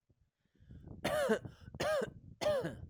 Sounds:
Cough